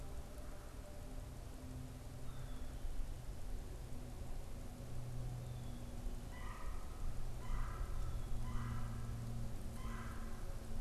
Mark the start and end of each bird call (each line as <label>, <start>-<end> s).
Black-capped Chickadee (Poecile atricapillus), 2.0-5.9 s
Red-bellied Woodpecker (Melanerpes carolinus), 6.1-10.7 s